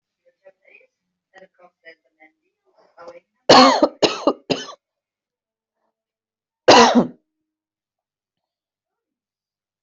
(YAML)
expert_labels:
- quality: good
  cough_type: dry
  dyspnea: false
  wheezing: false
  stridor: false
  choking: false
  congestion: false
  nothing: true
  diagnosis: upper respiratory tract infection
  severity: mild
age: 33
gender: female
respiratory_condition: false
fever_muscle_pain: false
status: symptomatic